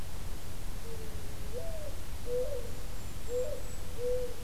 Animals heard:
Golden-crowned Kinglet (Regulus satrapa)
Mourning Dove (Zenaida macroura)

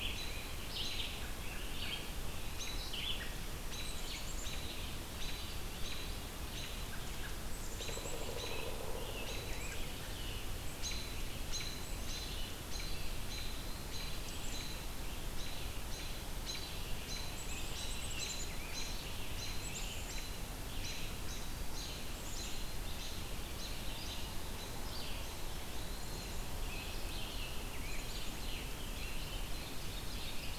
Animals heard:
Eastern Wood-Pewee (Contopus virens)
Red-eyed Vireo (Vireo olivaceus)
Black-capped Chickadee (Poecile atricapillus)
Ovenbird (Seiurus aurocapilla)
Scarlet Tanager (Piranga olivacea)
American Robin (Turdus migratorius)

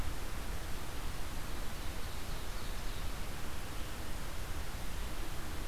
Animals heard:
Ovenbird (Seiurus aurocapilla)

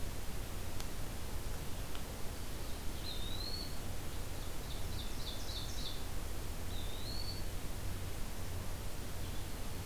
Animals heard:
Ovenbird (Seiurus aurocapilla)
Eastern Wood-Pewee (Contopus virens)
Blue-headed Vireo (Vireo solitarius)

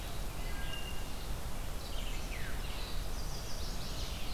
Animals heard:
Veery (Catharus fuscescens)
Chestnut-sided Warbler (Setophaga pensylvanica)
Wood Thrush (Hylocichla mustelina)
Black-capped Chickadee (Poecile atricapillus)

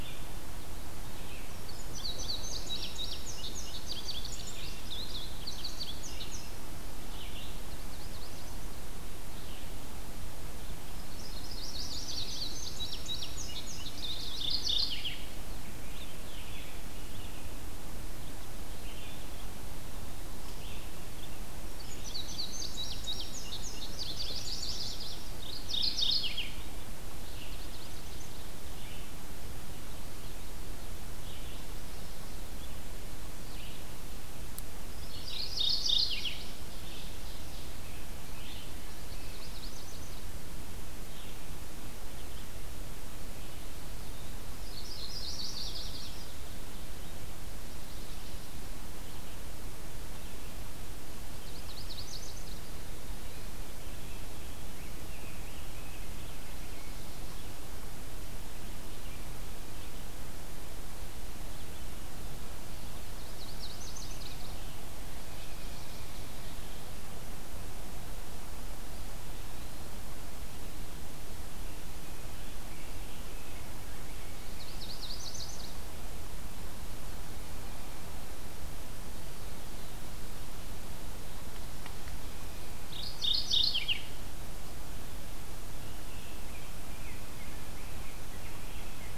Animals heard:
Yellow-rumped Warbler (Setophaga coronata)
Rose-breasted Grosbeak (Pheucticus ludovicianus)
Ovenbird (Seiurus aurocapilla)
Mourning Warbler (Geothlypis philadelphia)
Red-eyed Vireo (Vireo olivaceus)
Indigo Bunting (Passerina cyanea)

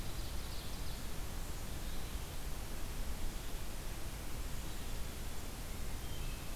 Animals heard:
Hermit Thrush (Catharus guttatus)
Ovenbird (Seiurus aurocapilla)

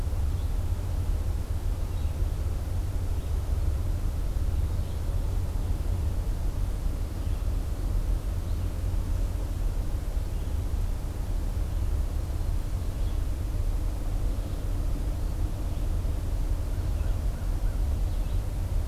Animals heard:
American Crow (Corvus brachyrhynchos)
Red-eyed Vireo (Vireo olivaceus)

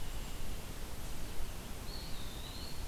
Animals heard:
Eastern Wood-Pewee (Contopus virens)

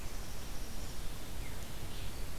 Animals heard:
Black-capped Chickadee (Poecile atricapillus)

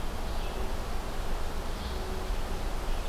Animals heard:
Red-eyed Vireo (Vireo olivaceus)

